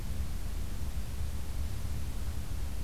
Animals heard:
forest ambience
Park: Acadia National Park